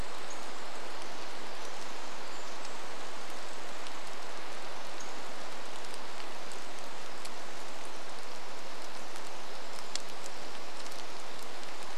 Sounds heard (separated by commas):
rain, Pacific-slope Flycatcher call, Pacific Wren song